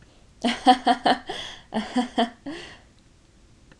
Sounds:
Laughter